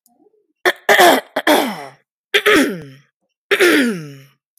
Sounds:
Throat clearing